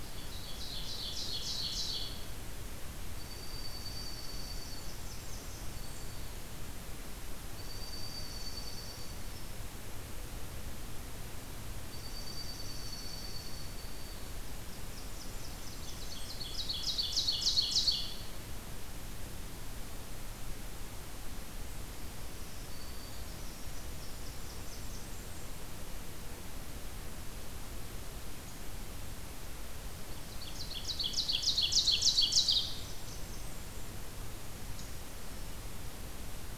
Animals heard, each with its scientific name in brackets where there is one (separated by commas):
Dark-eyed Junco (Junco hyemalis), Brown Creeper (Certhia americana), Ovenbird (Seiurus aurocapilla), Blackburnian Warbler (Setophaga fusca), Black-throated Green Warbler (Setophaga virens)